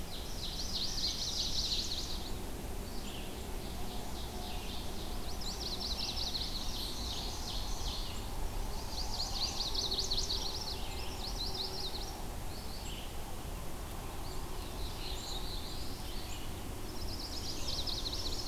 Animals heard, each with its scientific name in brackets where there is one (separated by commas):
Chestnut-sided Warbler (Setophaga pensylvanica), Black-throated Blue Warbler (Setophaga caerulescens), Ovenbird (Seiurus aurocapilla), Red-eyed Vireo (Vireo olivaceus), Wood Thrush (Hylocichla mustelina)